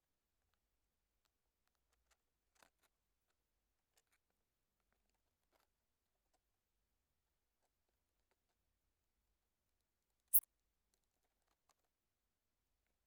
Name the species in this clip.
Steropleurus brunnerii